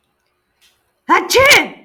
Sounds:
Sneeze